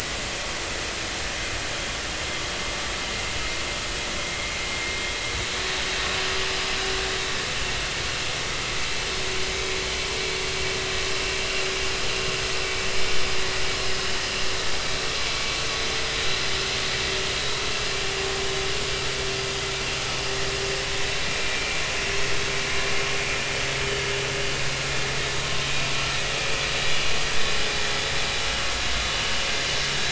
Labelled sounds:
21.2	21.8	vessel noise, 2.3 to 2.5 kHz

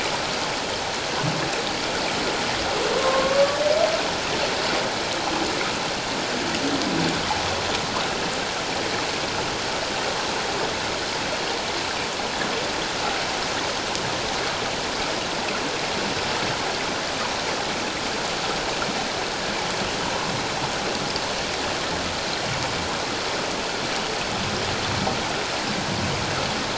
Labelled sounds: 3.0	3.6	humpback whale, 0.97 to 1.2 kHz

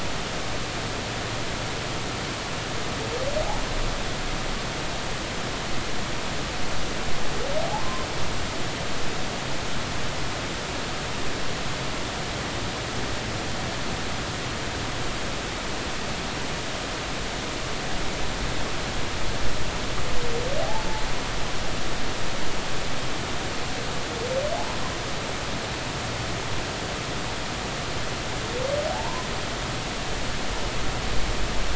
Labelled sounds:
7.6	8.1	humpback whale, 0.80 to 1.1 kHz
20.6	20.9	humpback whale, 0.80 to 0.96 kHz
28.9	29.3	humpback whale, 0.80 to 1.1 kHz

